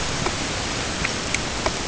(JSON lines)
{"label": "ambient", "recorder": "HydroMoth"}